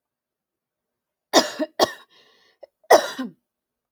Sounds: Cough